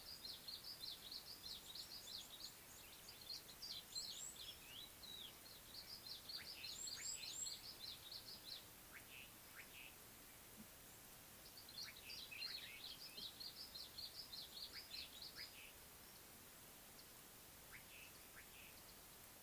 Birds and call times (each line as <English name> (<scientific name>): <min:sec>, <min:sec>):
Red-faced Crombec (Sylvietta whytii): 0:06.9
Red-cheeked Cordonbleu (Uraeginthus bengalus): 0:07.1
Slate-colored Boubou (Laniarius funebris): 0:09.0